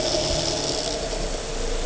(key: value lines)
label: anthrophony, boat engine
recorder: HydroMoth